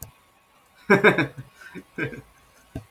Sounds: Laughter